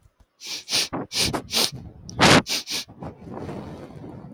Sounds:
Sniff